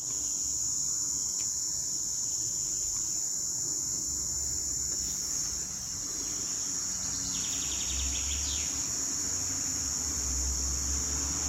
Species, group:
Tibicina haematodes
Cicadidae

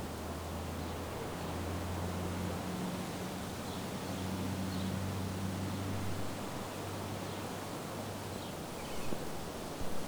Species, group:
Stenobothrus lineatus
Orthoptera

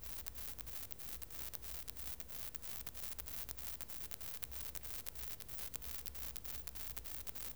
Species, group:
Isophya kraussii
Orthoptera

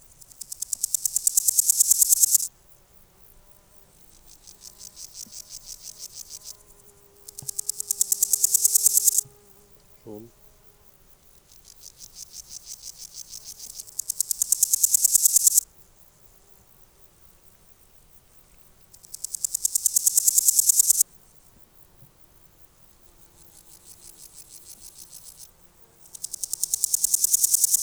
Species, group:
Chrysochraon dispar
Orthoptera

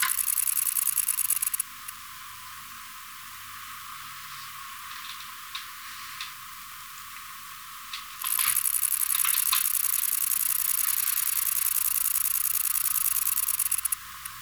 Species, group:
Conocephalus fuscus
Orthoptera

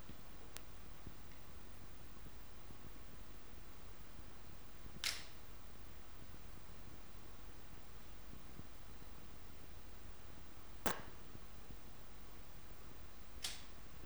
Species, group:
Poecilimon zimmeri
Orthoptera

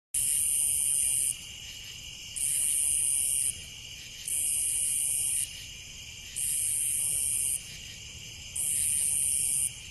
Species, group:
Neoconocephalus nebrascensis
Orthoptera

